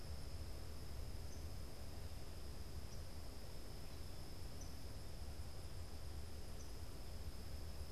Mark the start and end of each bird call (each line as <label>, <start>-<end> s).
unidentified bird, 0.0-7.9 s